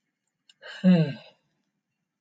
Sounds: Sigh